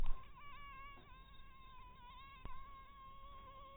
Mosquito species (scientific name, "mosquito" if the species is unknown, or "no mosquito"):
mosquito